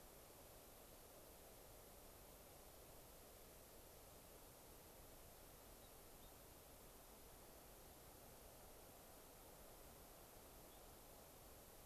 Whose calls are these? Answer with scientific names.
unidentified bird